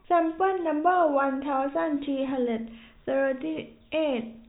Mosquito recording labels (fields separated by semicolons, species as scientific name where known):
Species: no mosquito; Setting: cup